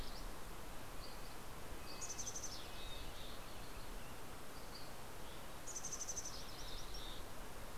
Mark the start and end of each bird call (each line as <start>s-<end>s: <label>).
0.0s-1.7s: Dusky Flycatcher (Empidonax oberholseri)
0.6s-3.5s: Red-breasted Nuthatch (Sitta canadensis)
1.9s-3.3s: Mountain Chickadee (Poecile gambeli)
4.5s-5.6s: Dusky Flycatcher (Empidonax oberholseri)
5.5s-7.1s: Mountain Chickadee (Poecile gambeli)
6.5s-7.6s: MacGillivray's Warbler (Geothlypis tolmiei)